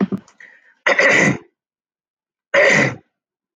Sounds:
Throat clearing